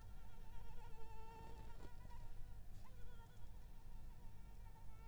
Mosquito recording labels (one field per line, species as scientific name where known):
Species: Anopheles arabiensis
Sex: female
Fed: unfed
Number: one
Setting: cup